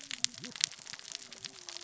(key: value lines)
label: biophony, cascading saw
recorder: SoundTrap 600 or HydroMoth